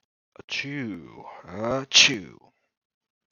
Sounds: Sneeze